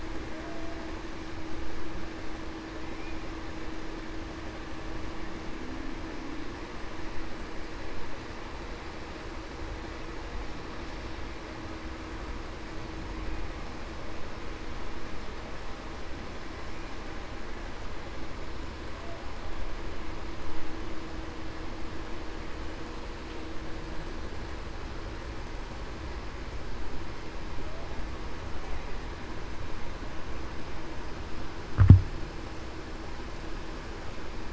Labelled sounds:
0.3	0.8	humpback whale, 0.56 to 0.70 kHz

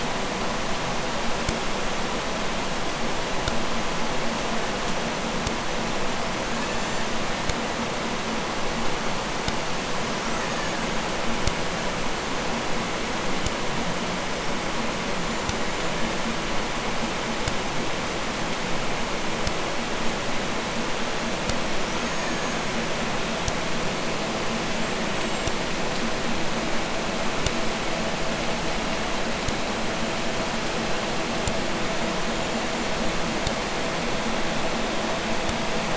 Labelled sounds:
6.0	7.8	killer whale, Bigg's (transient), 0.83 to 8.0 kHz
9.9	11.1	killer whale, Bigg's (transient), 0.71 to 8.0 kHz
13.9	16.0	killer whale, Bigg's (transient), 3.7 to 7.7 kHz
21.7	23.0	killer whale, Bigg's (transient), 1.2 to 6.9 kHz
24.7	25.6	killer whale, Bigg's (transient), 1.3 to 8.0 kHz
32.1	32.9	killer whale, Bigg's (transient), 6.4 to 7.6 kHz

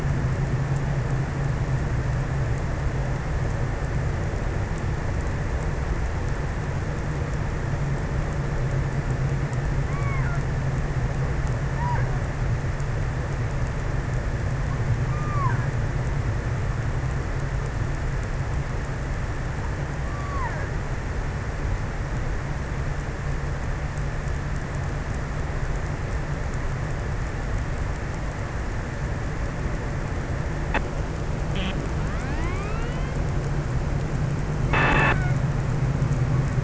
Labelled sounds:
9.3	10.7	killer whale, offshore, 0.57 to 2.7 kHz
11.1	13.4	killer whale, offshore, 0.37 to 2.4 kHz
15.0	16.2	killer whale, offshore, 0.67 to 2.8 kHz
19.7	21.0	killer whale, offshore, 0.47 to 2.5 kHz

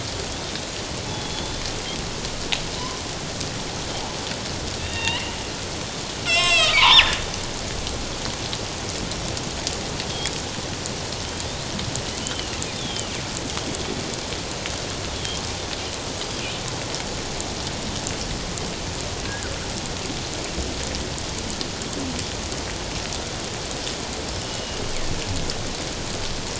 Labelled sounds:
1.1	1.6	killer whale, northern resident, G clan, 3.3 to 3.6 kHz
4.8	5.4	killer whale, northern resident, G clan, 1.8 to 3.9 kHz
6.2	7.2	killer whale, northern resident, G clan, 0.81 to 8.0 kHz
12.2	13.1	killer whale, northern resident, G clan, 2.6 to 3.7 kHz
13.7	14.0	killer whale, northern resident, G clan, 3.3 to 3.4 kHz
16.2	16.4	killer whale, northern resident, G clan, 4.8 to 5.0 kHz
19.2	19.5	killer whale, northern resident, G clan, 1.4 to 1.7 kHz
24.4	24.8	killer whale, northern resident, G clan, 2.8 to 3.0 kHz

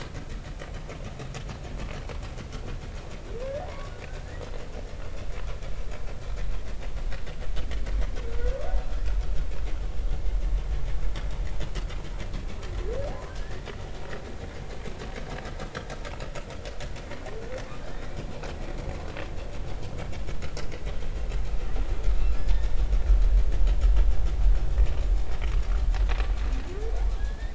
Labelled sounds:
3.4	3.9	humpback whale, 0.90 to 1.9 kHz
13.3	13.7	humpback whale, 1.5 to 1.9 kHz
27.2	27.5	humpback whale, 1.6 to 2.0 kHz

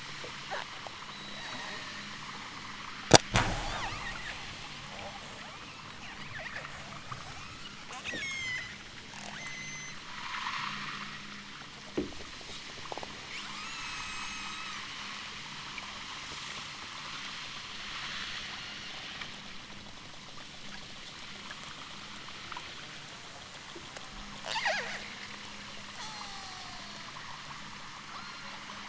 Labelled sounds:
0.9	2.1	killer whale, southern Alaska resident, 3.4 to 8.0 kHz
3.6	4.0	killer whale, southern Alaska resident, 0.64 to 6.2 kHz
5.4	6.0	killer whale, southern Alaska resident, 0.50 to 7.2 kHz
6.8	8.7	killer whale, southern Alaska resident, 0.60 to 8.0 kHz
9.2	10.1	killer whale, southern Alaska resident, 0.69 to 8.0 kHz
13.3	14.9	killer whale, southern Alaska resident, 0.73 to 8.0 kHz
18.4	19.0	killer whale, southern Alaska resident, 5.3 to 8.0 kHz
24.4	25.1	killer whale, southern Alaska resident, 0.28 to 8.0 kHz
25.9	27.2	killer whale, southern Alaska resident, 0.37 to 8.0 kHz
28.1	28.6	killer whale, southern Alaska resident, 2.3 to 6.3 kHz

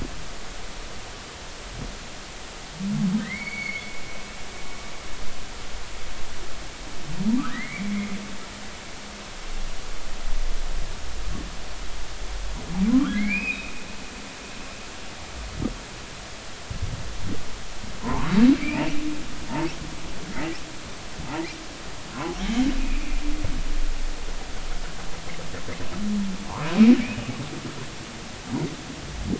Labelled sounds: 3.2	4.4	humpback whale, 1.7 to 4.6 kHz
7.4	7.9	humpback whale, 1.1 to 2.4 kHz
12.9	13.7	humpback whale, 0.96 to 3.9 kHz
18.0	18.3	humpback whale, 0.80 to 1.2 kHz
20.3	20.6	humpback whale, 1.9 to 2.1 kHz
22.4	23.2	humpback whale, 2.3 to 3.5 kHz

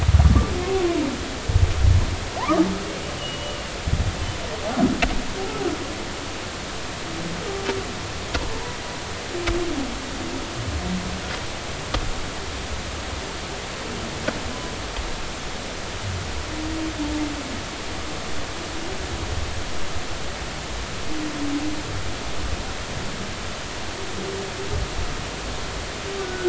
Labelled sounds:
2.4	3.7	humpback whale, 0.80 to 3.0 kHz
26.2	26.4	humpback whale, 1.4 to 1.5 kHz

